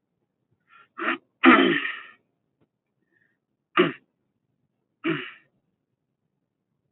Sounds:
Throat clearing